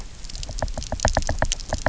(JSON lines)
{"label": "biophony, knock", "recorder": "SoundTrap 300"}